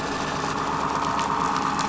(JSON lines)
{"label": "anthrophony, boat engine", "recorder": "SoundTrap 500"}